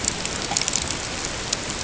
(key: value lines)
label: ambient
recorder: HydroMoth